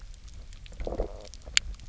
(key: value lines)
label: biophony, low growl
recorder: SoundTrap 300